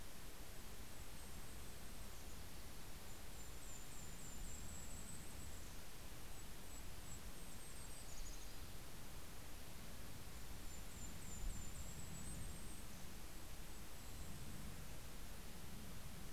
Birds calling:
Golden-crowned Kinglet (Regulus satrapa)
Mountain Chickadee (Poecile gambeli)
Yellow-rumped Warbler (Setophaga coronata)

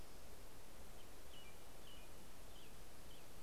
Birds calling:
American Robin (Turdus migratorius)

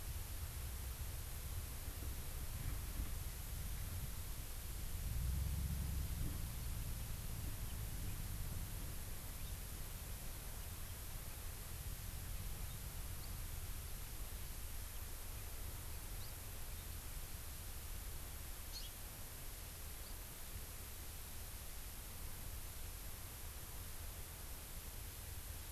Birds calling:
House Finch (Haemorhous mexicanus)

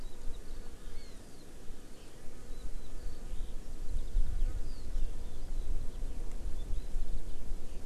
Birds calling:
Eurasian Skylark (Alauda arvensis)

